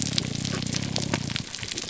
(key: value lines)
label: biophony, grouper groan
recorder: SoundTrap 300